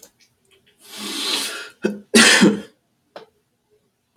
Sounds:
Sneeze